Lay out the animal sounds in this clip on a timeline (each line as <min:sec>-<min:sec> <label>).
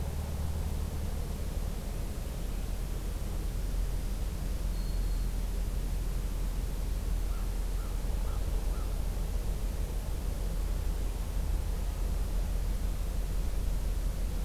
0:03.8-0:05.3 Black-throated Green Warbler (Setophaga virens)
0:07.1-0:08.9 American Crow (Corvus brachyrhynchos)